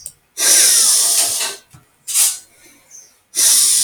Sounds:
Sigh